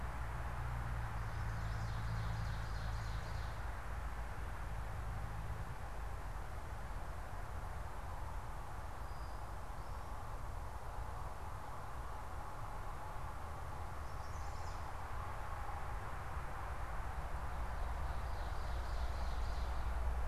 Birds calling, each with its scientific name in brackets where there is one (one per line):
Chestnut-sided Warbler (Setophaga pensylvanica)
Ovenbird (Seiurus aurocapilla)